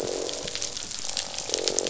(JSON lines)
{"label": "biophony, croak", "recorder": "SoundTrap 500"}